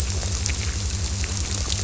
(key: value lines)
label: biophony
recorder: SoundTrap 300